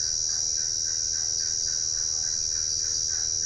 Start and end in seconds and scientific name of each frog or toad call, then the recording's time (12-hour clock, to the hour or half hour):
0.0	3.2	Dendropsophus cruzi
~7pm